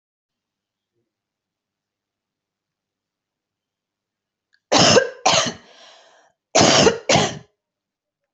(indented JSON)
{
  "expert_labels": [
    {
      "quality": "good",
      "cough_type": "wet",
      "dyspnea": false,
      "wheezing": false,
      "stridor": false,
      "choking": false,
      "congestion": false,
      "nothing": true,
      "diagnosis": "upper respiratory tract infection",
      "severity": "mild"
    }
  ]
}